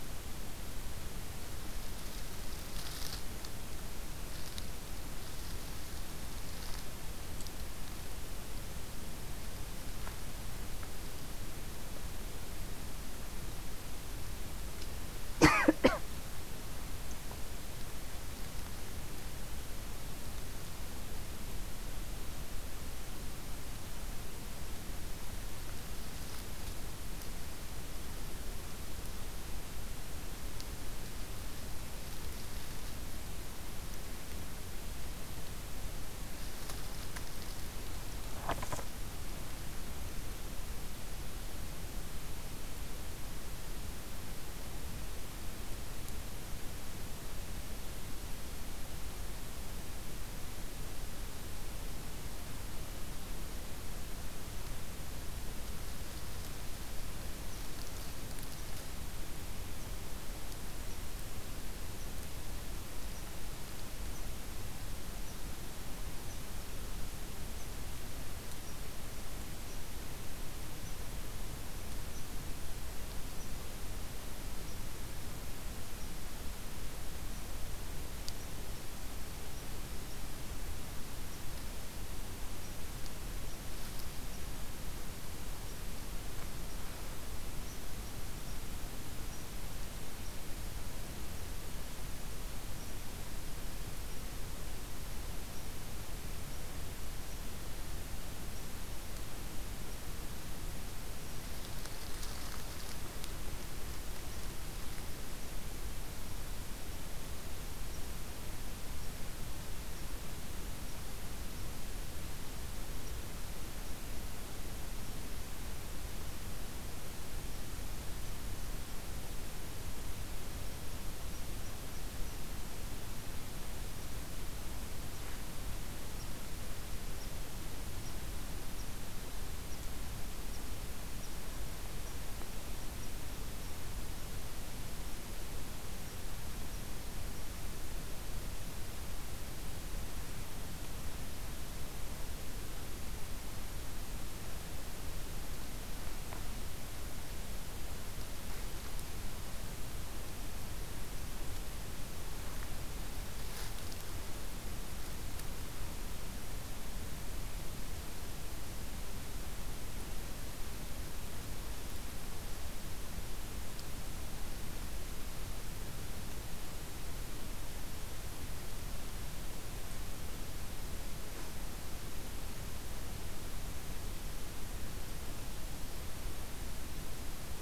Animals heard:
forest ambience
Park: Hubbard Brook Experimental Forest